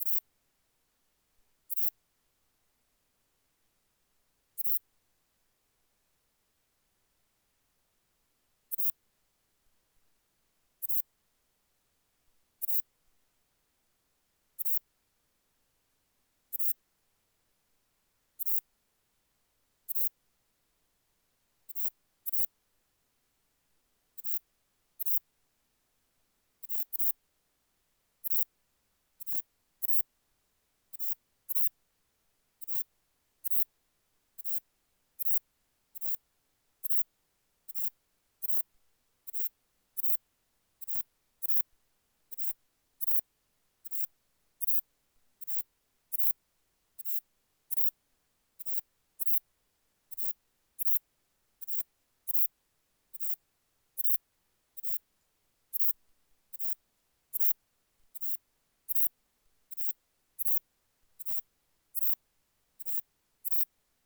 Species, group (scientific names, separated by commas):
Ephippiger ephippiger, Orthoptera